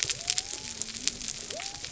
{"label": "biophony", "recorder": "SoundTrap 300"}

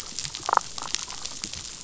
{"label": "biophony, damselfish", "recorder": "SoundTrap 500"}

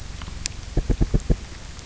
{"label": "biophony, knock", "recorder": "SoundTrap 300"}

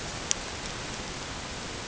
{"label": "ambient", "recorder": "HydroMoth"}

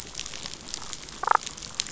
{"label": "biophony, damselfish", "recorder": "SoundTrap 500"}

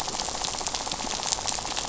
{"label": "biophony, rattle", "recorder": "SoundTrap 500"}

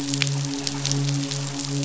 {"label": "biophony, midshipman", "recorder": "SoundTrap 500"}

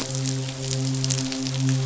{"label": "biophony, midshipman", "recorder": "SoundTrap 500"}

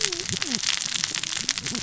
{"label": "biophony, cascading saw", "recorder": "SoundTrap 600 or HydroMoth"}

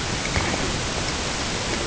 {"label": "ambient", "recorder": "HydroMoth"}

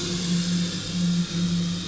{"label": "anthrophony, boat engine", "recorder": "SoundTrap 500"}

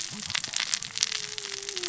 {"label": "biophony, cascading saw", "recorder": "SoundTrap 600 or HydroMoth"}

